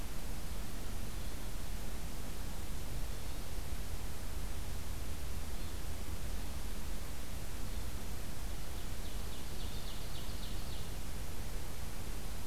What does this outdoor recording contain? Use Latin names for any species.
Catharus guttatus, Seiurus aurocapilla